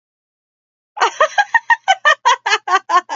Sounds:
Laughter